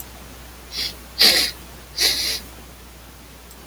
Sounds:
Sniff